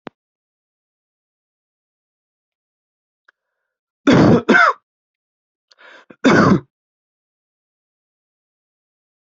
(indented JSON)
{
  "expert_labels": [
    {
      "quality": "ok",
      "cough_type": "wet",
      "dyspnea": false,
      "wheezing": false,
      "stridor": false,
      "choking": false,
      "congestion": false,
      "nothing": true,
      "diagnosis": "lower respiratory tract infection",
      "severity": "mild"
    }
  ],
  "age": 26,
  "gender": "male",
  "respiratory_condition": false,
  "fever_muscle_pain": false,
  "status": "COVID-19"
}